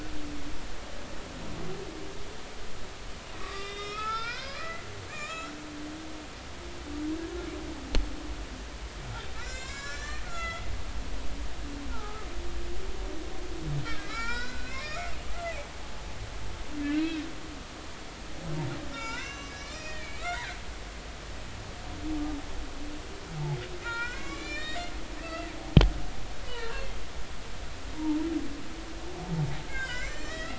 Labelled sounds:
3.4	5.5	humpback whale, 0.83 to 7.3 kHz
9.3	10.6	humpback whale, 1.0 to 7.6 kHz
11.9	12.3	humpback whale, 0.80 to 1.5 kHz
13.8	15.5	humpback whale, 0.86 to 7.5 kHz
16.8	17.1	humpback whale, 2.5 to 2.9 kHz
18.9	20.6	humpback whale, 0.86 to 7.4 kHz
23.8	24.9	humpback whale, 0.90 to 7.6 kHz
25.2	25.5	humpback whale, 1.8 to 2.8 kHz
26.4	26.9	humpback whale, 0.90 to 2.1 kHz
29.7	30.5	humpback whale, 0.96 to 7.4 kHz

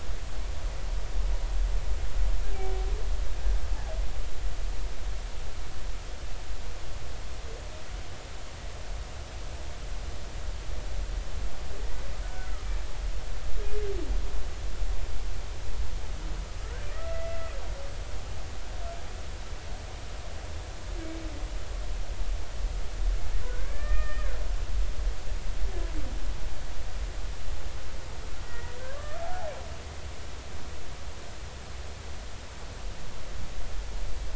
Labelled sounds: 12.2	12.5	humpback whale, 1.4 to 1.6 kHz
16.6	17.5	humpback whale, 1.2 to 2.0 kHz
21.0	21.3	humpback whale, 2.2 to 2.3 kHz
23.4	24.3	humpback whale, 1.1 to 2.5 kHz
28.4	29.4	humpback whale, 0.99 to 2.0 kHz

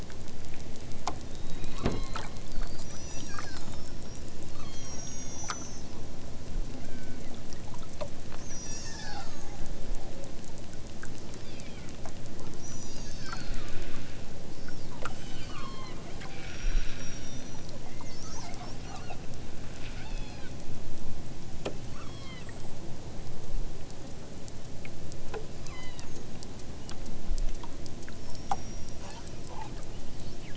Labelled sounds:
1.3	2.5	killer whale, southern Alaska resident, 1.0 to 6.1 kHz
2.8	6.0	killer whale, southern Alaska resident, 0.83 to 7.2 kHz
6.7	7.5	killer whale, southern Alaska resident, 1.2 to 5.1 kHz
8.3	9.6	killer whale, southern Alaska resident, 0.60 to 8.0 kHz
11.3	12.1	killer whale, southern Alaska resident, 1.1 to 5.9 kHz
12.6	14.3	killer whale, southern Alaska resident, 0.87 to 8.0 kHz
15.1	16.0	killer whale, southern Alaska resident, 0.60 to 8.0 kHz
16.4	17.6	killer whale, southern Alaska resident, 1.1 to 8.0 kHz
17.9	19.2	killer whale, southern Alaska resident, 1.7 to 6.5 kHz
19.8	20.6	killer whale, southern Alaska resident, 1.1 to 7.1 kHz
21.8	22.5	killer whale, southern Alaska resident, 0.83 to 7.0 kHz
25.5	26.1	killer whale, southern Alaska resident, 0.83 to 6.3 kHz

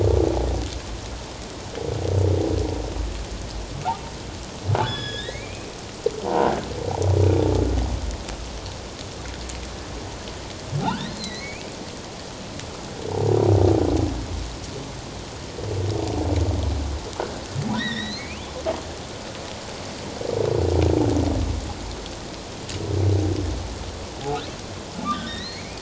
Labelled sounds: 4.8	5.7	humpback whale, 1.4 to 5.3 kHz
6.2	6.6	croaking sound likely from a nearby submerged object, 0.78 to 1.7 kHz
10.8	11.7	humpback whale, 1.2 to 4.3 kHz
17.7	18.5	humpback whale, 1.7 to 4.4 kHz
25.0	25.8	humpback whale, 1.1 to 4.3 kHz

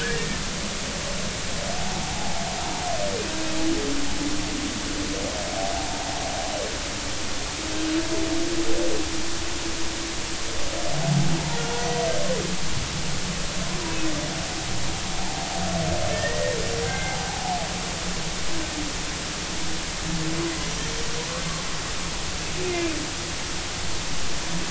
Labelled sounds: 0.1	0.4	humpback whale, 1.7 to 1.9 kHz
2.1	2.4	humpback whale, 0.80 to 0.90 kHz
5.8	6.1	humpback whale, 0.86 to 1.1 kHz
15.2	15.4	humpback whale, 0.80 to 0.93 kHz
16.1	17.3	humpback whale, 0.80 to 2.2 kHz
22.6	22.9	humpback whale, 2.3 to 2.6 kHz

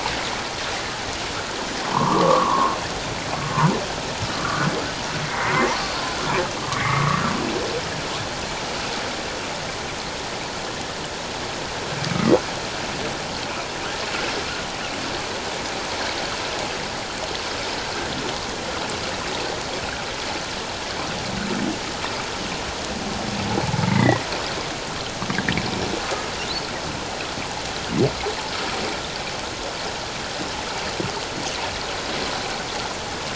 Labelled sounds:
1.8	2.8	humpback whale, 0.84 to 1.2 kHz
4.3	5.7	humpback whale, 1.1 to 2.3 kHz
6.7	7.3	humpback whale, 1.0 to 2.3 kHz
12.0	12.4	humpback whale, 1.1 to 2.4 kHz
23.9	24.2	humpback whale, 1.7 to 2.2 kHz
26.0	26.3	humpback whale, 1.2 to 1.3 kHz

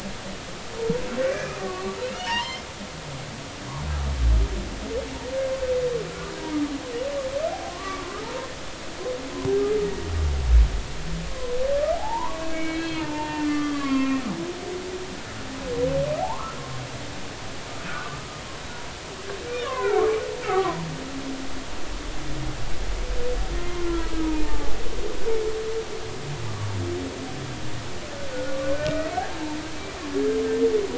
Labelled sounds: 1.2	2.7	humpback whale, 0.86 to 5.4 kHz
6.1	6.3	humpback whale, 1.3 to 1.5 kHz
7.7	8.0	humpback whale, 1.0 to 1.2 kHz
11.2	11.5	humpback whale, 0.96 to 1.1 kHz
12.0	14.2	humpback whale, 0.80 to 4.3 kHz
16.2	16.6	humpback whale, 0.80 to 1.4 kHz
17.9	18.4	humpback whale, 0.99 to 1.3 kHz
19.4	20.0	humpback whale, 0.80 to 3.0 kHz
20.4	20.9	humpback whale, 0.90 to 1.3 kHz
23.6	24.8	humpback whale, 0.80 to 2.2 kHz

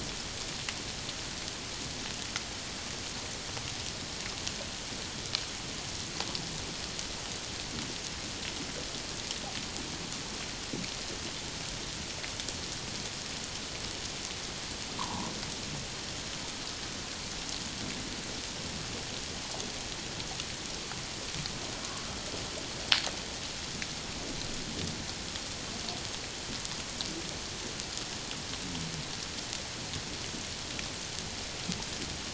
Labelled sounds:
15.0	15.3	humpback whale, 0.78 to 1.2 kHz

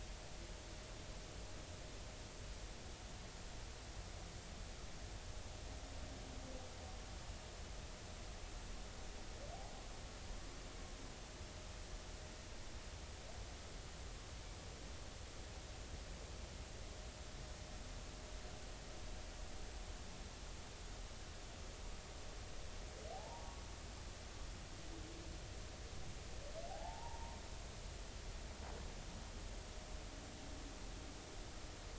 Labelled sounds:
23.1	23.6	humpback whale, 0.80 to 1.2 kHz
26.7	27.4	humpback whale, 0.80 to 0.99 kHz

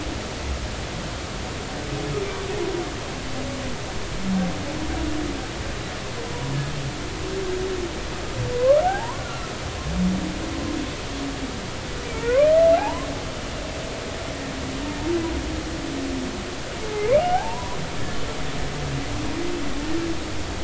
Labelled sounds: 8.8	9.5	humpback whale, 0.80 to 1.5 kHz
12.1	13.1	humpback whale, 0.80 to 2.2 kHz
17.1	17.8	humpback whale, 0.80 to 3.0 kHz

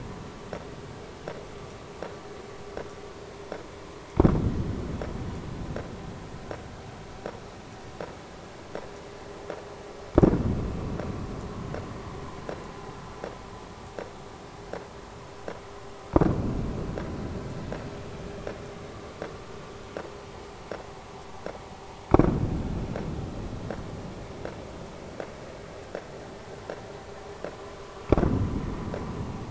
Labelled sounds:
27.8	28.0	vessel noise, 0.99 to 1.3 kHz

